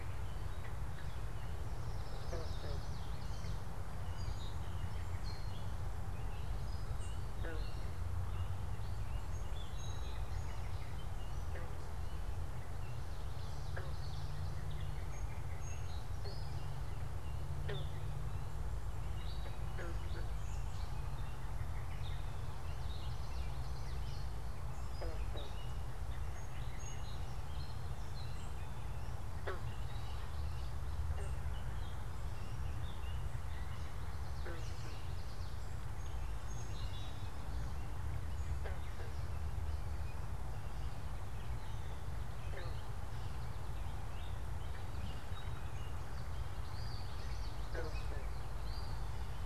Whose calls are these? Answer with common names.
American Robin, Common Yellowthroat, Song Sparrow, Gray Catbird